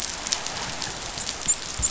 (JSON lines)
{"label": "biophony, dolphin", "recorder": "SoundTrap 500"}